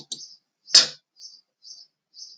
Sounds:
Sneeze